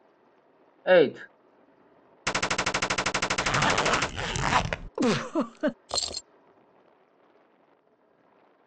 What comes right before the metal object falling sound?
giggle